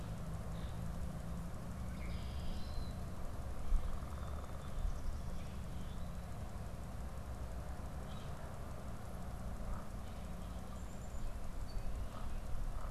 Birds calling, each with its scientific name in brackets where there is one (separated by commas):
Common Grackle (Quiscalus quiscula), unidentified bird, Red-winged Blackbird (Agelaius phoeniceus)